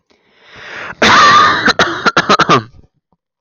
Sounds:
Cough